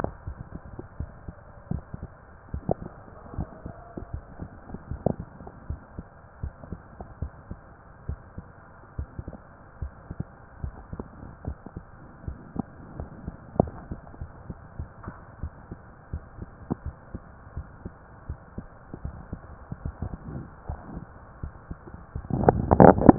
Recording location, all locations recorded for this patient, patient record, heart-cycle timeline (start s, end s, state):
mitral valve (MV)
aortic valve (AV)+pulmonary valve (PV)+tricuspid valve (TV)+mitral valve (MV)
#Age: Child
#Sex: Male
#Height: 155.0 cm
#Weight: 46.8 kg
#Pregnancy status: False
#Murmur: Absent
#Murmur locations: nan
#Most audible location: nan
#Systolic murmur timing: nan
#Systolic murmur shape: nan
#Systolic murmur grading: nan
#Systolic murmur pitch: nan
#Systolic murmur quality: nan
#Diastolic murmur timing: nan
#Diastolic murmur shape: nan
#Diastolic murmur grading: nan
#Diastolic murmur pitch: nan
#Diastolic murmur quality: nan
#Outcome: Normal
#Campaign: 2015 screening campaign
0.00	5.47	unannotated
5.47	5.49	S1
5.49	5.67	diastole
5.67	5.80	S1
5.80	5.96	systole
5.96	6.07	S2
6.07	6.40	diastole
6.40	6.54	S1
6.54	6.68	systole
6.68	6.80	S2
6.80	7.19	diastole
7.19	7.30	S1
7.30	7.46	systole
7.46	7.60	S2
7.60	8.05	diastole
8.05	8.20	S1
8.20	8.32	systole
8.32	8.45	S2
8.45	8.95	diastole
8.95	9.10	S1
9.10	9.26	systole
9.26	9.40	S2
9.40	9.77	diastole
9.77	9.94	S1
9.94	10.16	systole
10.16	10.28	S2
10.28	10.61	diastole
10.61	10.76	S1
10.76	10.92	systole
10.92	11.06	S2
11.06	11.43	diastole
11.43	11.58	S1
11.58	11.74	systole
11.74	11.84	S2
11.84	12.23	diastole
12.23	12.40	S1
12.40	12.54	systole
12.54	12.68	S2
12.68	12.94	diastole
12.94	13.10	S1
13.10	13.22	systole
13.22	13.36	S2
13.36	13.56	diastole
13.56	13.74	S1
13.74	13.88	systole
13.88	14.00	S2
14.00	14.20	diastole
14.20	14.32	S1
14.32	14.44	systole
14.44	14.58	S2
14.58	14.75	diastole
14.75	14.92	S1
14.92	15.04	systole
15.04	15.18	S2
15.18	15.40	diastole
15.40	15.56	S1
15.56	15.69	systole
15.69	15.84	S2
15.84	16.09	diastole
16.09	16.24	S1
16.24	16.36	systole
16.36	16.48	S2
16.48	16.83	diastole
16.83	16.96	S1
16.96	17.11	systole
17.11	17.25	S2
17.25	17.53	diastole
17.53	17.68	S1
17.68	17.82	systole
17.82	17.92	S2
17.92	18.25	diastole
18.25	18.38	S1
18.38	18.56	systole
18.56	18.68	S2
18.68	18.92	diastole
18.92	18.94	S1
18.94	23.18	unannotated